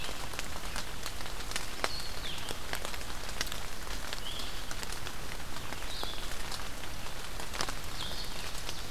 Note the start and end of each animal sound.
[0.00, 8.91] Blue-headed Vireo (Vireo solitarius)

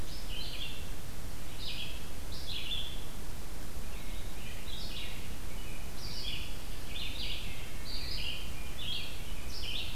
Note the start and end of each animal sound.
[0.00, 9.95] Red-eyed Vireo (Vireo olivaceus)

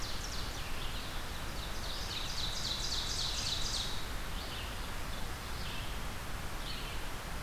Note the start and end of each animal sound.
[0.00, 7.42] Red-eyed Vireo (Vireo olivaceus)
[1.55, 4.01] Ovenbird (Seiurus aurocapilla)

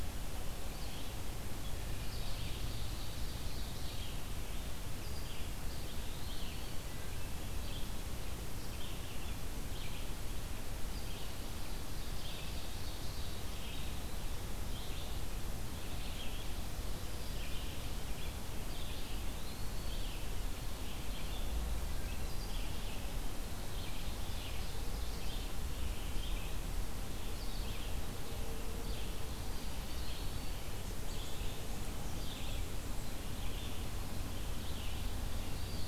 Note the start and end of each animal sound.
[0.00, 35.87] Red-eyed Vireo (Vireo olivaceus)
[2.18, 3.96] Ovenbird (Seiurus aurocapilla)
[5.57, 6.91] Eastern Wood-Pewee (Contopus virens)
[11.72, 13.60] Ovenbird (Seiurus aurocapilla)
[18.83, 20.15] Eastern Wood-Pewee (Contopus virens)
[23.61, 25.41] Ovenbird (Seiurus aurocapilla)
[29.27, 30.69] Eastern Wood-Pewee (Contopus virens)

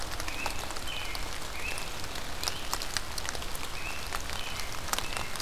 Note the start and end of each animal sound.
[0.21, 1.96] American Robin (Turdus migratorius)
[2.31, 2.74] Great Crested Flycatcher (Myiarchus crinitus)
[3.70, 5.42] American Robin (Turdus migratorius)

